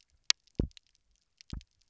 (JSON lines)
{"label": "biophony, double pulse", "recorder": "SoundTrap 300"}